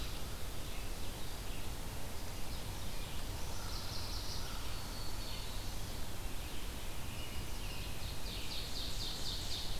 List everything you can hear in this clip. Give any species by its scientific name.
Vireo olivaceus, Setophaga pensylvanica, Setophaga virens, Turdus migratorius, Seiurus aurocapilla